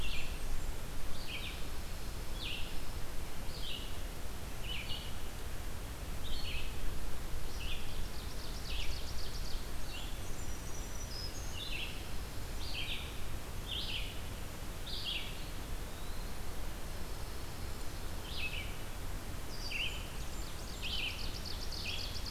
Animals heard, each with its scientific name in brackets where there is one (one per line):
Red-eyed Vireo (Vireo olivaceus)
Blackburnian Warbler (Setophaga fusca)
Pine Warbler (Setophaga pinus)
Black-throated Green Warbler (Setophaga virens)
Eastern Wood-Pewee (Contopus virens)
Ovenbird (Seiurus aurocapilla)